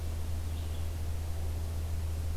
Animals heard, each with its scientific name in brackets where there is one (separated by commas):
Red-eyed Vireo (Vireo olivaceus)